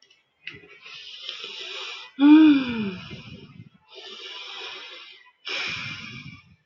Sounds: Sigh